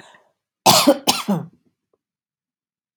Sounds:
Cough